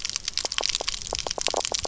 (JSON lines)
{"label": "biophony, knock croak", "recorder": "SoundTrap 300"}